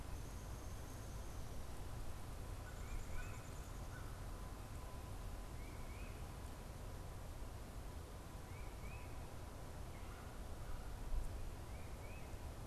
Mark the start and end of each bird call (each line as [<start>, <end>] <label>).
[0.00, 1.70] Downy Woodpecker (Dryobates pubescens)
[2.40, 4.00] Downy Woodpecker (Dryobates pubescens)
[2.40, 4.40] American Crow (Corvus brachyrhynchos)
[2.60, 3.50] Tufted Titmouse (Baeolophus bicolor)
[5.30, 6.50] Tufted Titmouse (Baeolophus bicolor)
[8.40, 9.40] Tufted Titmouse (Baeolophus bicolor)
[9.80, 11.10] American Crow (Corvus brachyrhynchos)
[11.40, 12.60] Tufted Titmouse (Baeolophus bicolor)